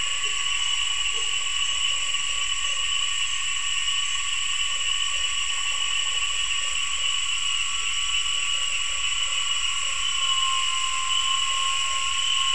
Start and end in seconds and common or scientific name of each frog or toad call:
0.0	2.9	Usina tree frog
4.7	12.5	Usina tree frog